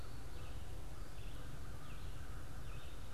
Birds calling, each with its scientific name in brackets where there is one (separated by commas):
American Crow (Corvus brachyrhynchos), Veery (Catharus fuscescens), Red-eyed Vireo (Vireo olivaceus)